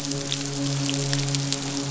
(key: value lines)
label: biophony, midshipman
recorder: SoundTrap 500